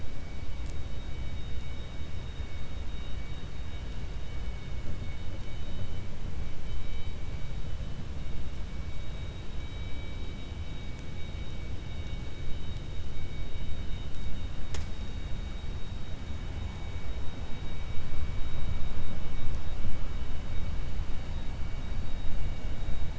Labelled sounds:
4.5	5.3	vessel noise, 2.2 to 4.5 kHz

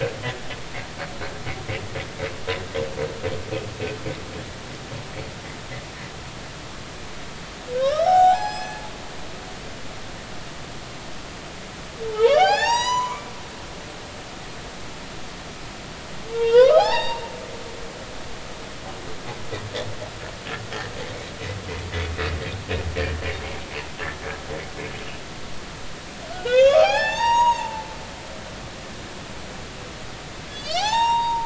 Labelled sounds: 7.8	9.4	humpback whale, 0.80 to 7.7 kHz
12.1	13.3	humpback whale, 0.80 to 8.0 kHz
16.3	17.2	humpback whale, 0.80 to 5.6 kHz
26.3	27.9	humpback whale, 0.80 to 8.0 kHz
30.5	31.4	humpback whale, 1.6 to 7.6 kHz

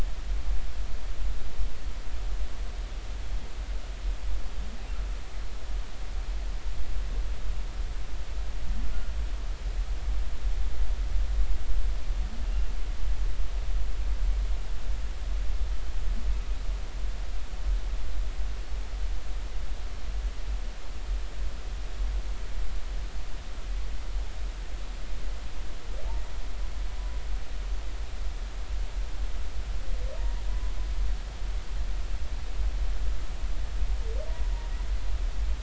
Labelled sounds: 30.2	30.4	humpback whale, 0.90 to 0.99 kHz

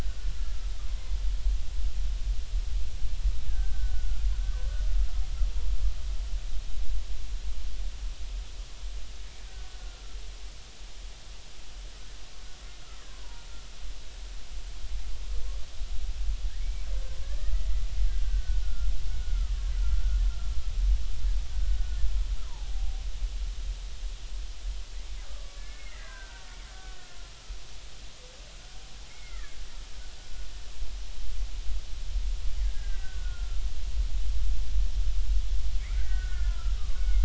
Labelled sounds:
3.5	4.3	killer whale, Bigg's (transient), 1.3 to 1.8 kHz
16.6	16.8	killer whale, Bigg's (transient), 2.1 to 2.4 kHz
17.2	17.6	killer whale, Bigg's (transient), 1.2 to 2.0 kHz
18.2	19.5	killer whale, Bigg's (transient), 1.2 to 1.6 kHz
19.9	20.2	killer whale, Bigg's (transient), 1.3 to 1.6 kHz
21.5	23.0	killer whale, Bigg's (transient), 0.80 to 1.6 kHz
25.3	26.5	killer whale, Bigg's (transient), 0.93 to 2.2 kHz
26.8	27.2	killer whale, Bigg's (transient), 1.4 to 1.6 kHz
29.1	29.6	killer whale, Bigg's (transient), 1.1 to 2.3 kHz
32.6	33.6	killer whale, Bigg's (transient), 1.3 to 2.1 kHz
35.9	37.2	killer whale, Bigg's (transient), 1.1 to 2.3 kHz

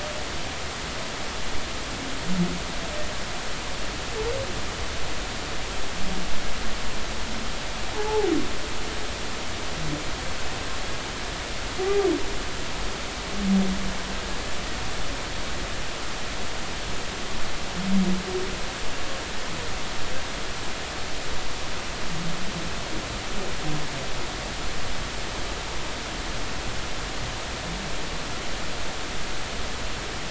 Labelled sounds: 8.0	8.3	humpback whale, 0.80 to 0.93 kHz

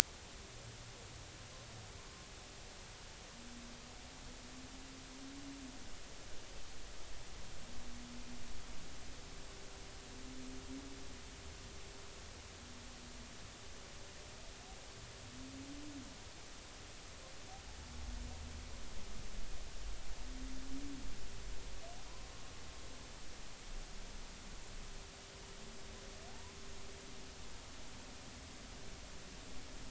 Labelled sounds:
26.3	26.5	humpback whale, 0.80 to 1.1 kHz

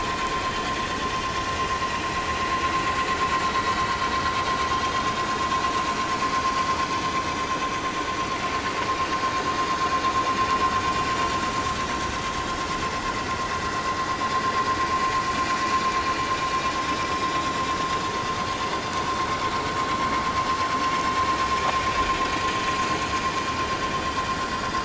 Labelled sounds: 11.9	12.1	vessel noise, 5.5 to 5.8 kHz
21.9	22.2	vessel noise, 4.8 to 5.0 kHz

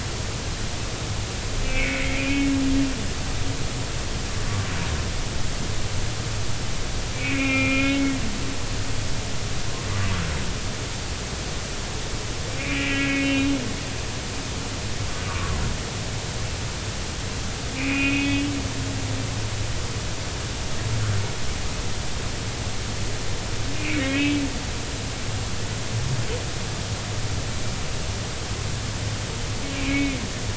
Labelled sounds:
1.6	2.5	humpback whale, 2.0 to 2.7 kHz
7.1	8.1	humpback whale, 1.3 to 3.1 kHz
12.6	13.3	humpback whale, 1.6 to 2.8 kHz
15.3	15.6	humpback whale, 1.0 to 1.2 kHz
17.8	18.4	humpback whale, 2.0 to 3.4 kHz
23.8	24.4	humpback whale, 1.8 to 2.9 kHz
29.7	30.2	humpback whale, 2.1 to 2.7 kHz

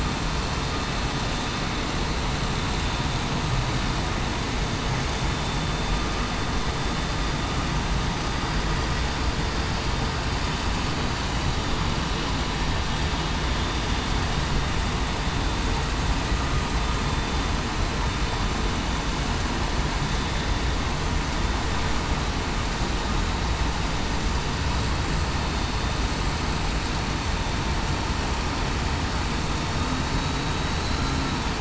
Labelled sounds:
30.8	31.1	vessel noise, 4.0 to 4.1 kHz

